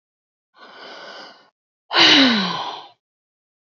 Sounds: Sigh